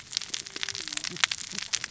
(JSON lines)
{"label": "biophony, cascading saw", "recorder": "SoundTrap 600 or HydroMoth"}